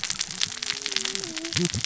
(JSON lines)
{"label": "biophony, cascading saw", "recorder": "SoundTrap 600 or HydroMoth"}